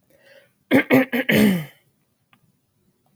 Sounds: Throat clearing